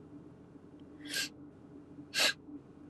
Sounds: Sniff